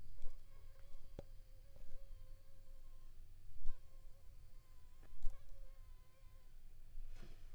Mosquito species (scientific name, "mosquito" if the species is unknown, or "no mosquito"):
Anopheles funestus s.l.